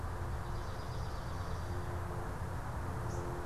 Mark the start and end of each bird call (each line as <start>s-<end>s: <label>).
0.0s-3.4s: unidentified bird
0.2s-1.9s: Swamp Sparrow (Melospiza georgiana)